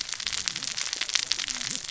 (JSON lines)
{"label": "biophony, cascading saw", "recorder": "SoundTrap 600 or HydroMoth"}